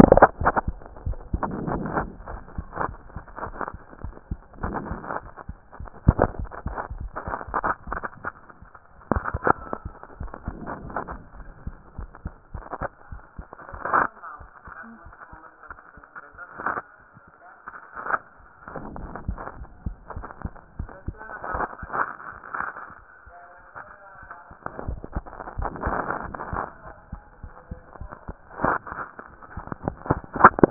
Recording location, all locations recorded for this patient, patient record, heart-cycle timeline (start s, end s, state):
mitral valve (MV)
aortic valve (AV)+tricuspid valve (TV)+mitral valve (MV)
#Age: Adolescent
#Sex: Male
#Height: 150.0 cm
#Weight: 38.5 kg
#Pregnancy status: False
#Murmur: Absent
#Murmur locations: nan
#Most audible location: nan
#Systolic murmur timing: nan
#Systolic murmur shape: nan
#Systolic murmur grading: nan
#Systolic murmur pitch: nan
#Systolic murmur quality: nan
#Diastolic murmur timing: nan
#Diastolic murmur shape: nan
#Diastolic murmur grading: nan
#Diastolic murmur pitch: nan
#Diastolic murmur quality: nan
#Outcome: Abnormal
#Campaign: 2014 screening campaign
0.00	1.04	unannotated
1.04	1.18	S1
1.18	1.32	systole
1.32	1.42	S2
1.42	1.70	diastole
1.70	1.84	S1
1.84	1.99	systole
1.99	2.10	S2
2.10	2.30	diastole
2.30	2.40	S1
2.40	2.56	systole
2.56	2.64	S2
2.64	2.84	diastole
2.84	2.96	S1
2.96	3.16	systole
3.16	3.24	S2
3.24	3.44	diastole
3.44	3.56	S1
3.56	3.72	systole
3.72	3.80	S2
3.80	4.02	diastole
4.02	4.14	S1
4.14	4.30	systole
4.30	4.38	S2
4.38	4.61	diastole
4.61	30.70	unannotated